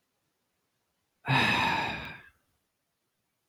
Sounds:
Sigh